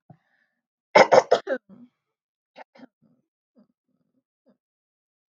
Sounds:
Throat clearing